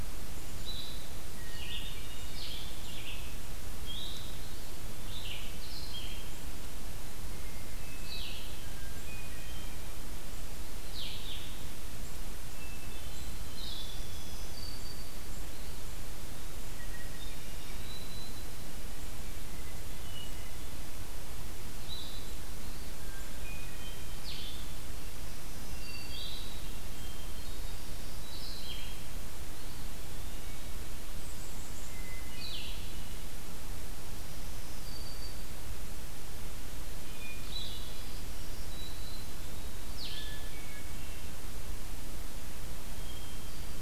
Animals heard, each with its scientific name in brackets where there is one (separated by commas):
Eastern Wood-Pewee (Contopus virens), Hermit Thrush (Catharus guttatus), Black-capped Chickadee (Poecile atricapillus), Black-throated Green Warbler (Setophaga virens), Blue-headed Vireo (Vireo solitarius)